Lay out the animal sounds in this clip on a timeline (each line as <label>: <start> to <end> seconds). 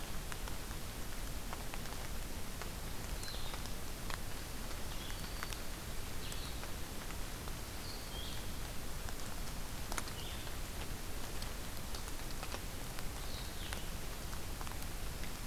Blue-headed Vireo (Vireo solitarius): 3.1 to 10.5 seconds
Black-throated Green Warbler (Setophaga virens): 5.1 to 5.8 seconds
Blue-headed Vireo (Vireo solitarius): 13.1 to 13.8 seconds